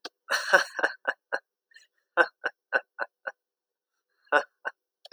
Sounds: Laughter